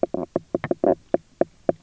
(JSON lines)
{"label": "biophony, knock croak", "recorder": "SoundTrap 300"}